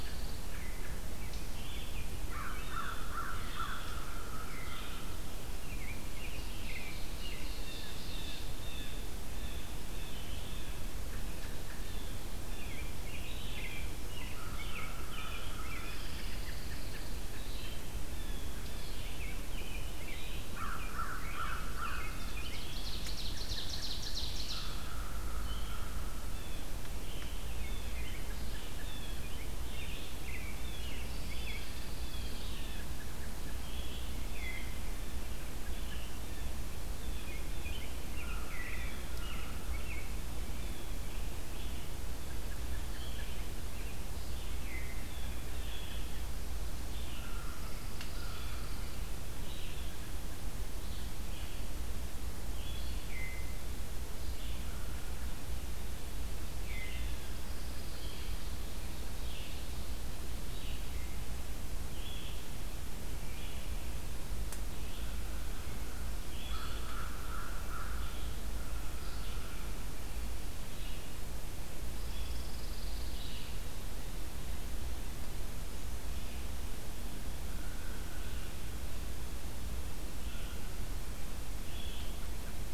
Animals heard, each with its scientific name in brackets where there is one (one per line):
American Robin (Turdus migratorius)
Veery (Catharus fuscescens)
Blue Jay (Cyanocitta cristata)
Pine Warbler (Setophaga pinus)
American Crow (Corvus brachyrhynchos)
Red-eyed Vireo (Vireo olivaceus)
Ovenbird (Seiurus aurocapilla)